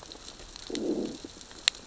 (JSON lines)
{"label": "biophony, growl", "recorder": "SoundTrap 600 or HydroMoth"}